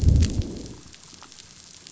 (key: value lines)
label: biophony, growl
recorder: SoundTrap 500